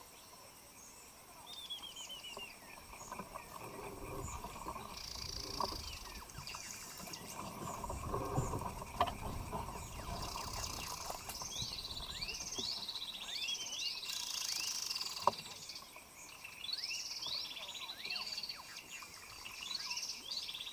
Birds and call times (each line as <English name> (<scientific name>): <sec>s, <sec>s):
Spectacled Weaver (Ploceus ocularis): 1.8s, 13.5s
Hunter's Cisticola (Cisticola hunteri): 11.9s